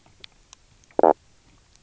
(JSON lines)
{"label": "biophony, knock croak", "recorder": "SoundTrap 300"}